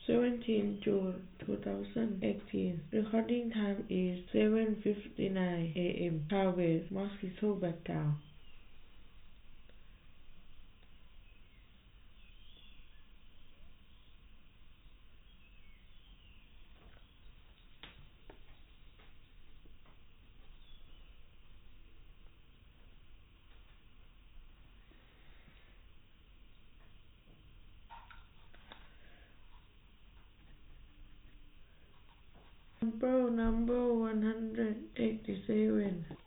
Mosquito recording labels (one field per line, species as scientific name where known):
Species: no mosquito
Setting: cup